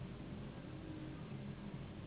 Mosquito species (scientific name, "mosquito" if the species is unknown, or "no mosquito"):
Anopheles gambiae s.s.